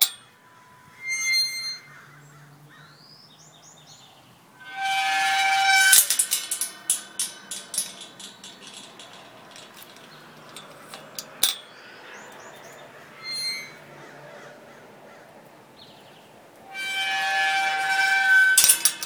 does a gate open quietly without a creak?
no